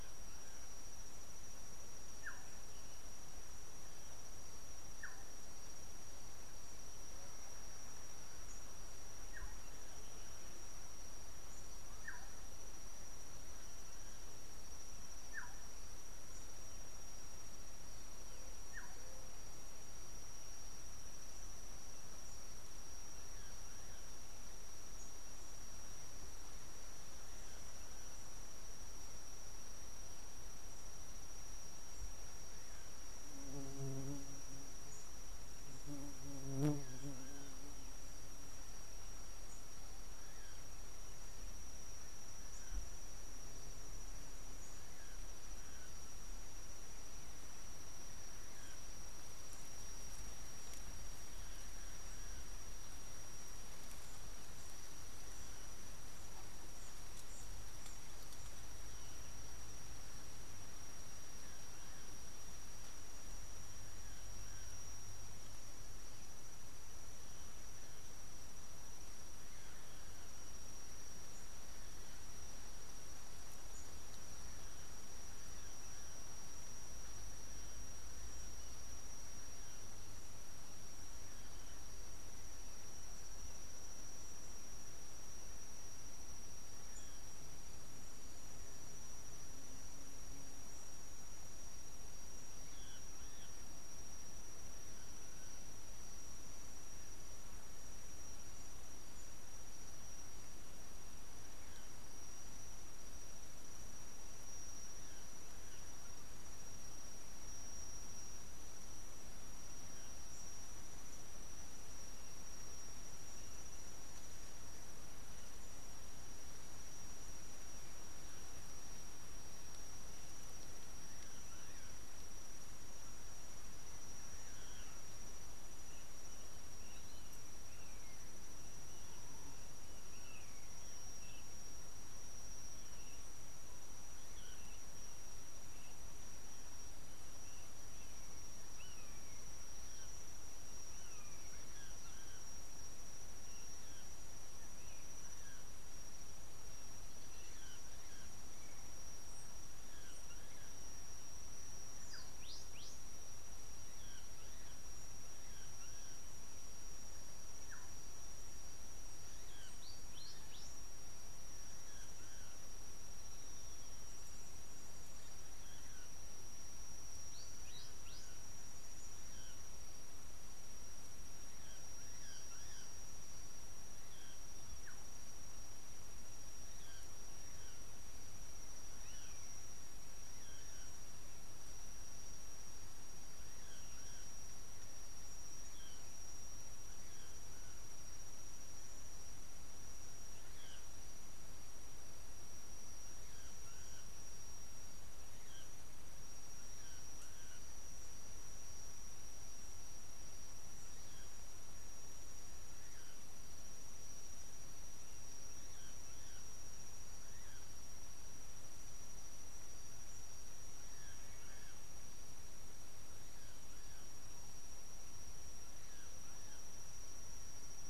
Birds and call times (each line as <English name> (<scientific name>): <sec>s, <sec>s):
Black-tailed Oriole (Oriolus percivali): 2.3s, 15.4s
Kikuyu White-eye (Zosterops kikuyuensis): 127.1s, 134.6s
Common Buzzard (Buteo buteo): 130.4s, 139.1s